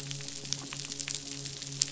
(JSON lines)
{"label": "biophony, midshipman", "recorder": "SoundTrap 500"}